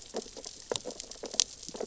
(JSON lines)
{"label": "biophony, sea urchins (Echinidae)", "recorder": "SoundTrap 600 or HydroMoth"}